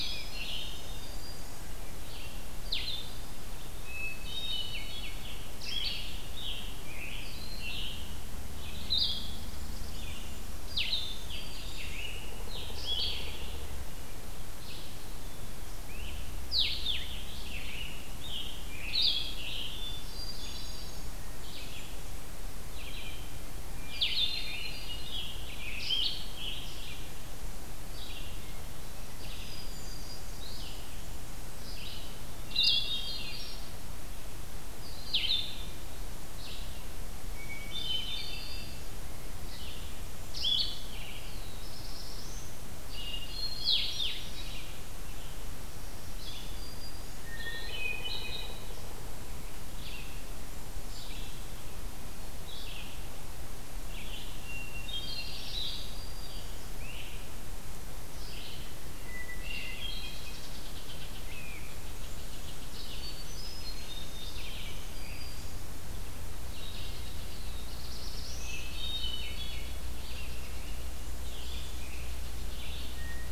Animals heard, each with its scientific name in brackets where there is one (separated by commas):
Hermit Thrush (Catharus guttatus), Black-throated Green Warbler (Setophaga virens), Scarlet Tanager (Piranga olivacea), unknown mammal, Red-eyed Vireo (Vireo olivaceus), Black-throated Blue Warbler (Setophaga caerulescens), Blackburnian Warbler (Setophaga fusca), Blue-headed Vireo (Vireo solitarius)